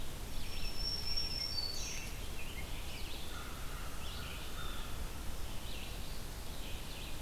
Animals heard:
Red-eyed Vireo (Vireo olivaceus), American Crow (Corvus brachyrhynchos), Black-throated Green Warbler (Setophaga virens)

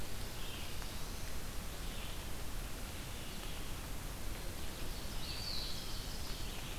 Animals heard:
Black-throated Blue Warbler (Setophaga caerulescens), Eastern Wood-Pewee (Contopus virens), Ovenbird (Seiurus aurocapilla), Red-eyed Vireo (Vireo olivaceus)

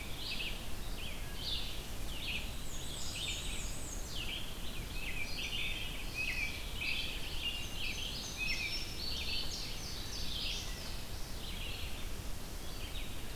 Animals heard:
Black-and-white Warbler (Mniotilta varia), American Robin (Turdus migratorius), Red-eyed Vireo (Vireo olivaceus), Indigo Bunting (Passerina cyanea)

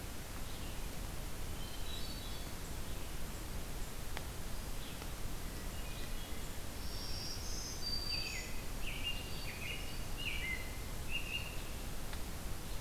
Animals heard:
Red-eyed Vireo (Vireo olivaceus), American Robin (Turdus migratorius), Hermit Thrush (Catharus guttatus), Black-throated Green Warbler (Setophaga virens)

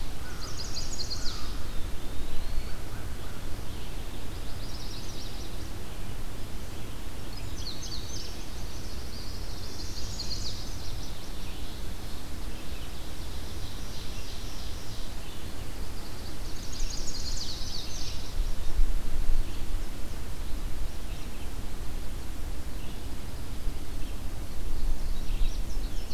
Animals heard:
Ovenbird (Seiurus aurocapilla), Red-eyed Vireo (Vireo olivaceus), Pine Warbler (Setophaga pinus), Indigo Bunting (Passerina cyanea), Chestnut-sided Warbler (Setophaga pensylvanica), American Crow (Corvus brachyrhynchos), Eastern Wood-Pewee (Contopus virens)

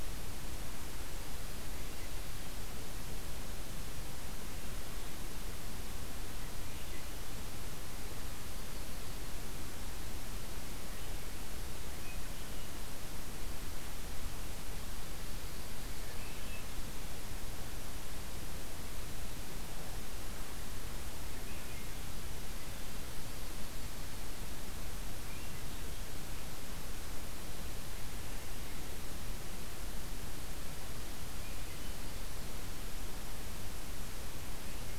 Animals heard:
Swainson's Thrush (Catharus ustulatus)

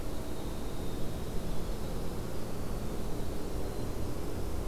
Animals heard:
Dark-eyed Junco (Junco hyemalis), Winter Wren (Troglodytes hiemalis)

